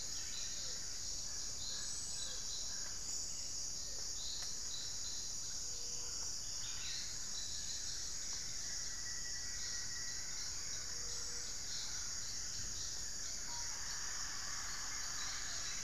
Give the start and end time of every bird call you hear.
[8.44, 10.64] Rufous-fronted Antthrush (Formicarius rufifrons)
[10.74, 15.83] unidentified bird
[11.44, 15.83] Black-fronted Nunbird (Monasa nigrifrons)

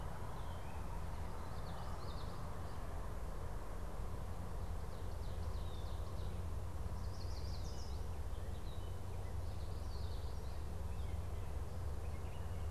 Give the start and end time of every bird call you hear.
[0.00, 12.69] Gray Catbird (Dumetella carolinensis)
[1.28, 2.58] Common Yellowthroat (Geothlypis trichas)
[6.58, 8.19] Yellow Warbler (Setophaga petechia)
[9.38, 10.79] Common Yellowthroat (Geothlypis trichas)

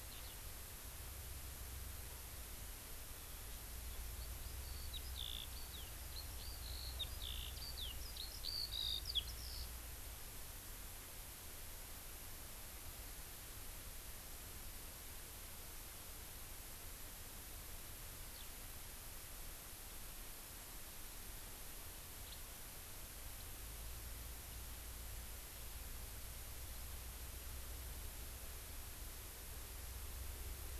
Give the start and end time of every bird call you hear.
[0.07, 0.37] Eurasian Skylark (Alauda arvensis)
[3.87, 9.67] Eurasian Skylark (Alauda arvensis)
[18.27, 18.47] Eurasian Skylark (Alauda arvensis)

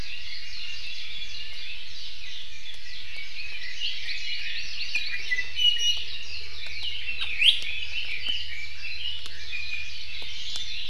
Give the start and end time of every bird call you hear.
[0.00, 2.80] Warbling White-eye (Zosterops japonicus)
[3.00, 5.20] Red-billed Leiothrix (Leiothrix lutea)
[3.30, 4.90] Hawaii Amakihi (Chlorodrepanis virens)
[5.30, 6.00] Iiwi (Drepanis coccinea)
[6.00, 9.20] Red-billed Leiothrix (Leiothrix lutea)
[7.40, 7.60] Iiwi (Drepanis coccinea)
[9.40, 10.00] Iiwi (Drepanis coccinea)

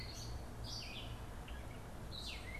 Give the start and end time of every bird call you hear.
[0.00, 2.59] Gray Catbird (Dumetella carolinensis)

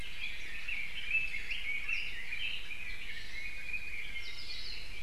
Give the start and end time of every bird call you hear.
[0.07, 4.07] Red-billed Leiothrix (Leiothrix lutea)
[4.17, 4.47] Apapane (Himatione sanguinea)
[4.37, 4.97] Hawaii Akepa (Loxops coccineus)

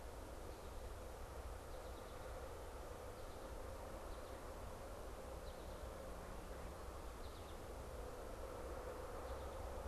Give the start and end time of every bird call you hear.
[0.00, 9.80] American Goldfinch (Spinus tristis)

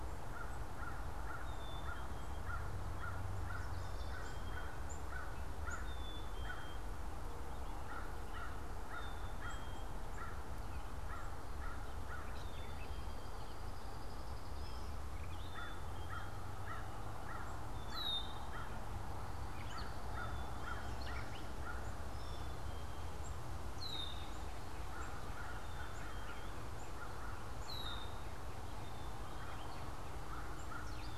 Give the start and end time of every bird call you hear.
[0.00, 21.91] American Crow (Corvus brachyrhynchos)
[0.00, 31.17] Black-capped Chickadee (Poecile atricapillus)
[12.21, 15.01] Brown-headed Cowbird (Molothrus ater)
[23.51, 31.17] Gray Catbird (Dumetella carolinensis)
[23.61, 24.41] Red-winged Blackbird (Agelaius phoeniceus)
[24.71, 31.17] American Crow (Corvus brachyrhynchos)
[27.51, 28.31] Red-winged Blackbird (Agelaius phoeniceus)

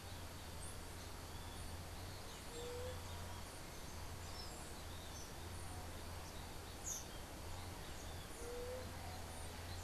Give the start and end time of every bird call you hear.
[2.54, 2.94] White-tipped Dove (Leptotila verreauxi)
[8.34, 8.94] White-tipped Dove (Leptotila verreauxi)

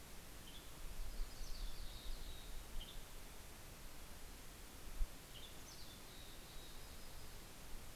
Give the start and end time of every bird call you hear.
[0.00, 3.70] Western Tanager (Piranga ludoviciana)
[0.40, 3.60] Yellow-rumped Warbler (Setophaga coronata)
[1.30, 2.60] Mountain Chickadee (Poecile gambeli)
[4.80, 6.30] Western Tanager (Piranga ludoviciana)
[5.50, 6.70] Mountain Chickadee (Poecile gambeli)

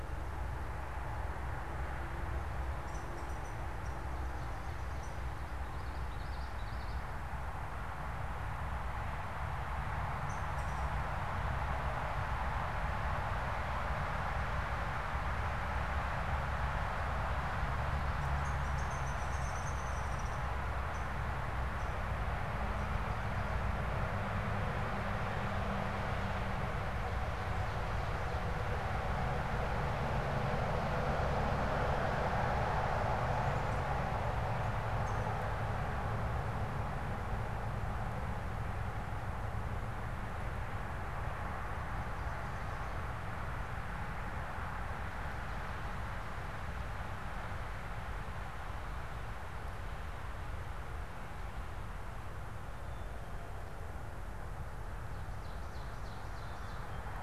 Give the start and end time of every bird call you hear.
[2.25, 5.34] Downy Woodpecker (Dryobates pubescens)
[5.45, 7.14] Common Yellowthroat (Geothlypis trichas)
[9.74, 11.04] Downy Woodpecker (Dryobates pubescens)
[18.25, 22.05] Downy Woodpecker (Dryobates pubescens)
[34.74, 35.34] Downy Woodpecker (Dryobates pubescens)
[55.15, 57.15] Ovenbird (Seiurus aurocapilla)

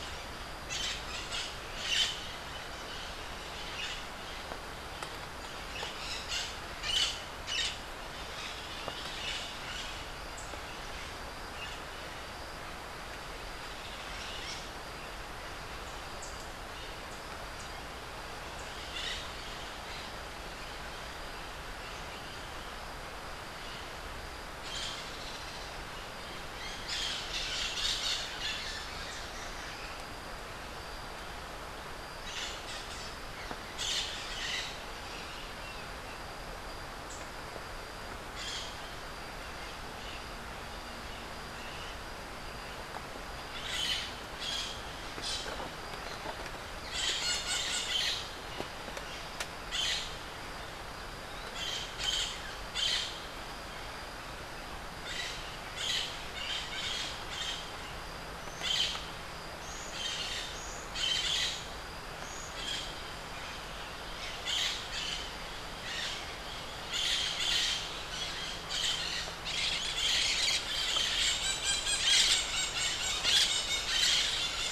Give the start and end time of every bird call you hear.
[0.80, 2.60] Crimson-fronted Parakeet (Psittacara finschi)
[5.70, 7.80] Crimson-fronted Parakeet (Psittacara finschi)
[8.30, 10.10] Crimson-fronted Parakeet (Psittacara finschi)
[16.00, 16.60] Rufous-capped Warbler (Basileuterus rufifrons)
[18.60, 19.40] Crimson-fronted Parakeet (Psittacara finschi)
[24.20, 25.90] Crimson-fronted Parakeet (Psittacara finschi)
[26.60, 29.10] Crimson-fronted Parakeet (Psittacara finschi)
[32.00, 35.00] Crimson-fronted Parakeet (Psittacara finschi)
[37.00, 37.30] Rufous-capped Warbler (Basileuterus rufifrons)
[38.10, 38.90] Crimson-fronted Parakeet (Psittacara finschi)
[43.60, 44.90] Crimson-fronted Parakeet (Psittacara finschi)
[46.80, 48.30] Crimson-fronted Parakeet (Psittacara finschi)
[49.50, 50.20] Crimson-fronted Parakeet (Psittacara finschi)
[51.40, 53.20] Crimson-fronted Parakeet (Psittacara finschi)
[55.00, 57.70] Crimson-fronted Parakeet (Psittacara finschi)
[58.40, 59.20] Crimson-fronted Parakeet (Psittacara finschi)
[59.70, 62.70] Buff-throated Saltator (Saltator maximus)
[59.90, 60.50] Crimson-fronted Parakeet (Psittacara finschi)
[60.90, 61.60] Crimson-fronted Parakeet (Psittacara finschi)
[62.40, 74.60] Crimson-fronted Parakeet (Psittacara finschi)

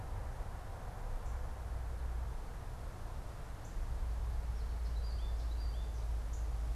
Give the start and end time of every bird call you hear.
[3.51, 6.71] Northern Cardinal (Cardinalis cardinalis)
[4.01, 6.11] American Goldfinch (Spinus tristis)

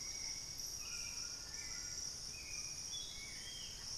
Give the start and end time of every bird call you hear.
[0.00, 3.98] Hauxwell's Thrush (Turdus hauxwelli)
[0.00, 3.98] White-throated Toucan (Ramphastos tucanus)

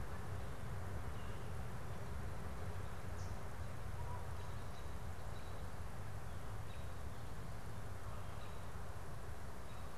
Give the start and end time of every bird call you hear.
[4.51, 9.91] American Robin (Turdus migratorius)

